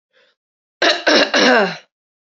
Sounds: Throat clearing